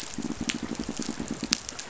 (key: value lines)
label: biophony, pulse
recorder: SoundTrap 500